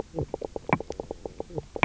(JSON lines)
{"label": "biophony, knock croak", "recorder": "SoundTrap 300"}